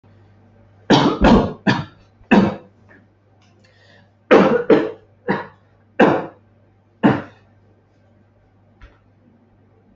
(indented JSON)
{
  "expert_labels": [
    {
      "quality": "poor",
      "cough_type": "unknown",
      "dyspnea": false,
      "wheezing": false,
      "stridor": false,
      "choking": false,
      "congestion": false,
      "nothing": true,
      "diagnosis": "COVID-19",
      "severity": "mild"
    }
  ],
  "age": 58,
  "gender": "male",
  "respiratory_condition": false,
  "fever_muscle_pain": false,
  "status": "healthy"
}